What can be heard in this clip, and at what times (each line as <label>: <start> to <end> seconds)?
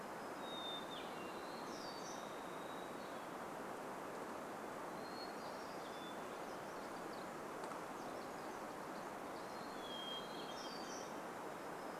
Hermit Thrush song: 0 to 2 seconds
warbler song: 0 to 4 seconds
Varied Thrush song: 2 to 4 seconds
Hermit Thrush song: 4 to 6 seconds
unidentified sound: 6 to 10 seconds
Hermit Thrush song: 8 to 12 seconds
warbler song: 10 to 12 seconds